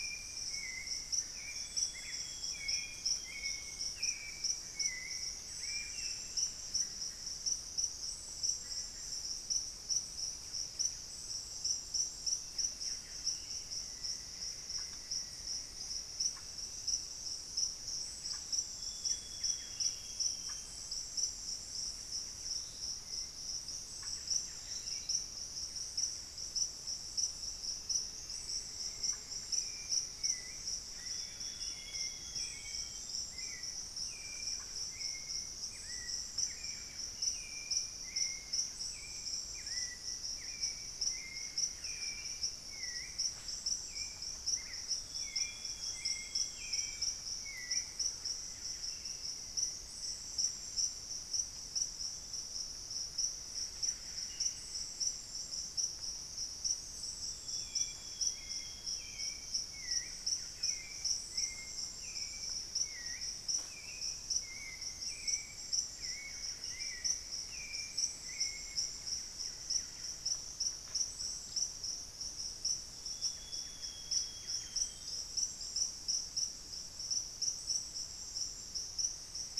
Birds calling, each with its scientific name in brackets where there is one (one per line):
Buff-breasted Wren (Cantorchilus leucotis)
Hauxwell's Thrush (Turdus hauxwelli)
unidentified bird
Black-faced Antthrush (Formicarius analis)
Amazonian Grosbeak (Cyanoloxia rothschildii)